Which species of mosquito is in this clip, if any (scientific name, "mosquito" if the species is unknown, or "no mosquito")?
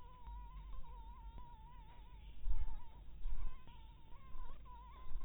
Anopheles harrisoni